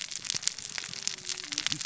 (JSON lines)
{"label": "biophony, cascading saw", "recorder": "SoundTrap 600 or HydroMoth"}